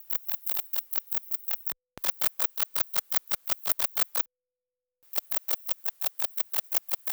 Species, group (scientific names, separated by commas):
Rhacocleis baccettii, Orthoptera